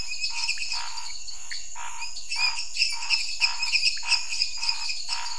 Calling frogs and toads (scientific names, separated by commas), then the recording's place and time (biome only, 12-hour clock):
Dendropsophus minutus, Dendropsophus nanus, Leptodactylus podicipinus, Pithecopus azureus, Scinax fuscovarius
Cerrado, 8:30pm